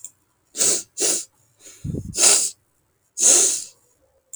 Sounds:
Sniff